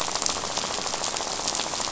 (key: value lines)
label: biophony, rattle
recorder: SoundTrap 500